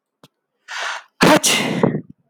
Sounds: Sneeze